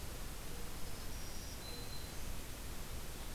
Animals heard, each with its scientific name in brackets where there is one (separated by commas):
Black-throated Green Warbler (Setophaga virens)